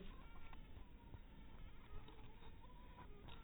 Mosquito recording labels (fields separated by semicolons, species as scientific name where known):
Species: mosquito; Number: one; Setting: cup